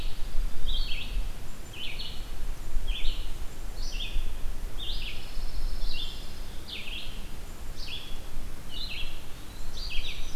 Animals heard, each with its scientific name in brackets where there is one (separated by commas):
Dark-eyed Junco (Junco hyemalis), Red-eyed Vireo (Vireo olivaceus), Pine Warbler (Setophaga pinus), Blackburnian Warbler (Setophaga fusca), Eastern Wood-Pewee (Contopus virens)